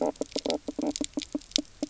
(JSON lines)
{"label": "biophony, knock croak", "recorder": "SoundTrap 300"}